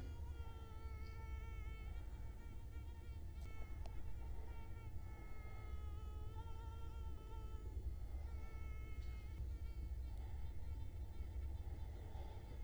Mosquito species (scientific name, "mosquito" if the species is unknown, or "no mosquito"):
Culex quinquefasciatus